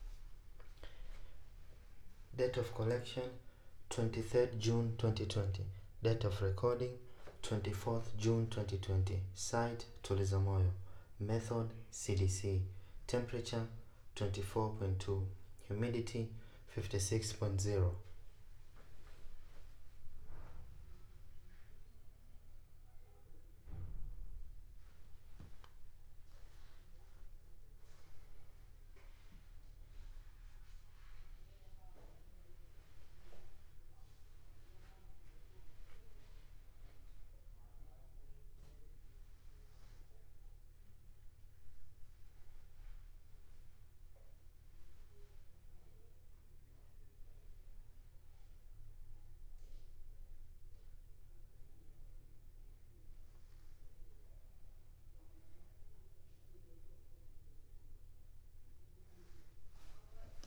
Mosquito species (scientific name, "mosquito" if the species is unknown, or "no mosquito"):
no mosquito